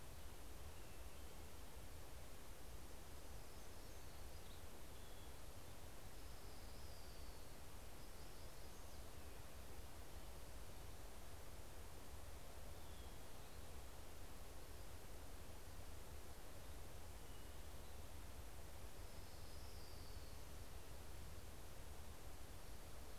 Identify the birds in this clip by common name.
Hermit Warbler, Orange-crowned Warbler